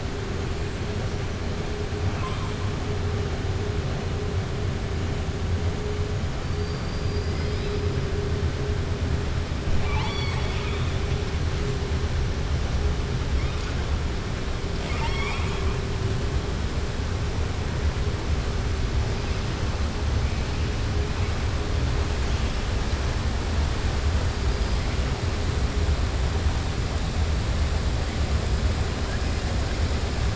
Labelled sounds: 2.0	2.5	killer whale, southern resident, 0.87 to 3.7 kHz
6.5	7.8	killer whale, southern resident, 3.2 to 5.5 kHz
9.7	11.0	killer whale, southern resident, 0.75 to 5.7 kHz
14.7	15.7	killer whale, southern resident, 0.82 to 7.7 kHz

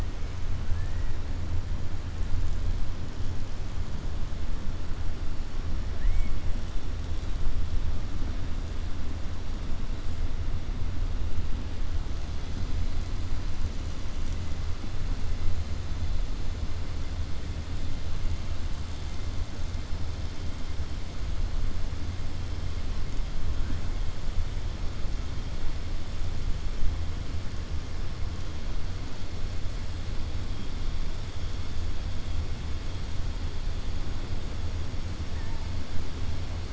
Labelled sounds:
0.6	1.1	killer whale, southern resident, 1.5 to 2.7 kHz
5.9	6.4	killer whale, southern resident, 1.7 to 3.0 kHz

